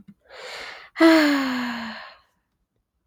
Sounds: Sigh